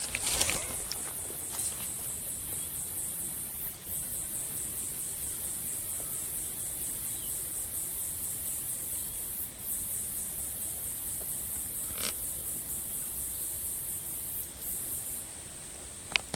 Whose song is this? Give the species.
Yoyetta regalis